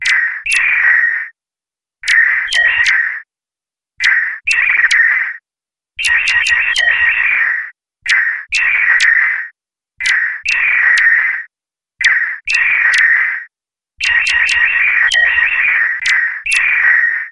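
0.0s Precisely amplified bird chirping. 17.3s

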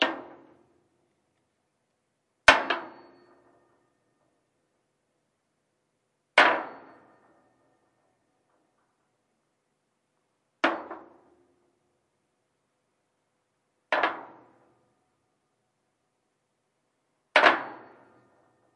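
0.0s A hammer slams metallically in a fading, repeating pattern. 18.8s

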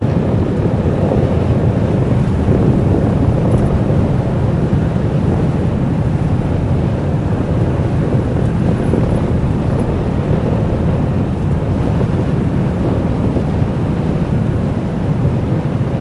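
0.0s Indistinct traffic noise. 16.0s

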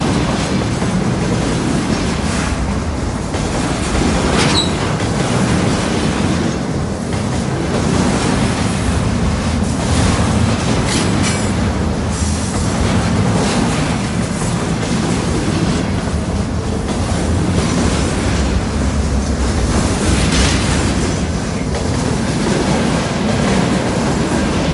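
0.0s A train running on tracks. 24.7s

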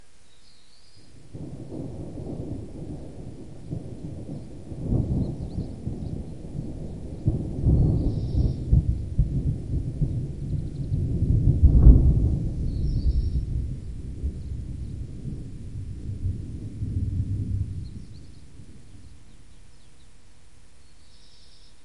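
0.0s A bird chirps continuously and melodically in the distance. 8.8s
1.3s Thunder rumbles in the distance, gradually increasing in intensity. 12.5s
12.5s Thunder rumbles in the distance, gradually fading away with an echo. 18.0s
12.5s A bird chirps continuously and melodically in the distance. 14.0s
17.8s A bird chirps continuously and melodically in the distance. 21.8s

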